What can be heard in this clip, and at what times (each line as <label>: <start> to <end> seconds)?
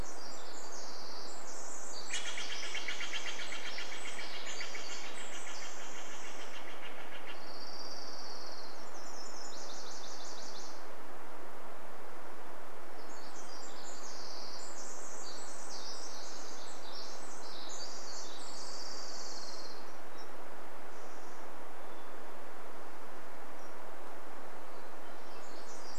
Pacific Wren song: 0 to 8 seconds
Steller's Jay call: 2 to 8 seconds
Orange-crowned Warbler song: 6 to 10 seconds
Nashville Warbler song: 8 to 12 seconds
Pacific Wren song: 12 to 20 seconds
Orange-crowned Warbler song: 18 to 20 seconds
unidentified sound: 20 to 22 seconds
Hermit Thrush song: 20 to 26 seconds
Pacific Wren song: 24 to 26 seconds